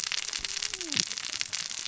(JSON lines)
{"label": "biophony, cascading saw", "recorder": "SoundTrap 600 or HydroMoth"}